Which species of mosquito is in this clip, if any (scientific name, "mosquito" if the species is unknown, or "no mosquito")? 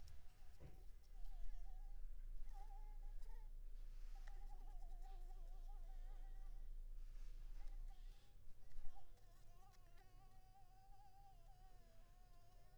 Anopheles maculipalpis